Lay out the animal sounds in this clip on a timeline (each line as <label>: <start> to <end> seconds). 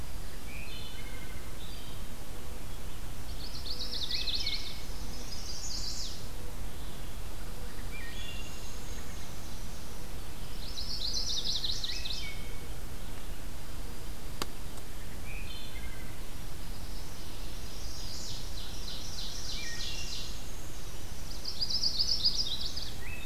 Wood Thrush (Hylocichla mustelina): 0.3 to 2.1 seconds
Chestnut-sided Warbler (Setophaga pensylvanica): 3.2 to 6.2 seconds
Wood Thrush (Hylocichla mustelina): 3.8 to 4.9 seconds
Wood Thrush (Hylocichla mustelina): 7.6 to 8.6 seconds
Black-and-white Warbler (Mniotilta varia): 8.0 to 10.1 seconds
Ovenbird (Seiurus aurocapilla): 8.2 to 9.7 seconds
Black-and-white Warbler (Mniotilta varia): 10.4 to 12.2 seconds
Chestnut-sided Warbler (Setophaga pensylvanica): 10.5 to 12.3 seconds
Wood Thrush (Hylocichla mustelina): 11.7 to 12.8 seconds
Red-eyed Vireo (Vireo olivaceus): 12.9 to 23.3 seconds
Dark-eyed Junco (Junco hyemalis): 13.4 to 14.7 seconds
Wood Thrush (Hylocichla mustelina): 15.1 to 16.3 seconds
Chestnut-sided Warbler (Setophaga pensylvanica): 16.2 to 18.6 seconds
Ovenbird (Seiurus aurocapilla): 17.9 to 20.4 seconds
Wood Thrush (Hylocichla mustelina): 19.3 to 20.6 seconds
Black-and-white Warbler (Mniotilta varia): 19.7 to 23.3 seconds
Chestnut-sided Warbler (Setophaga pensylvanica): 21.0 to 23.0 seconds